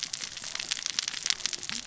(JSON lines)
{"label": "biophony, cascading saw", "recorder": "SoundTrap 600 or HydroMoth"}